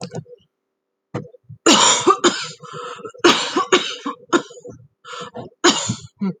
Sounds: Cough